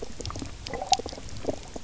{"label": "biophony, knock croak", "recorder": "SoundTrap 300"}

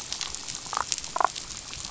{"label": "biophony, damselfish", "recorder": "SoundTrap 500"}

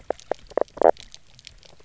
{"label": "biophony, knock croak", "recorder": "SoundTrap 300"}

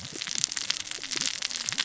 {"label": "biophony, cascading saw", "recorder": "SoundTrap 600 or HydroMoth"}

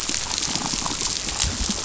{"label": "biophony, damselfish", "recorder": "SoundTrap 500"}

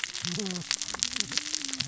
{"label": "biophony, cascading saw", "recorder": "SoundTrap 600 or HydroMoth"}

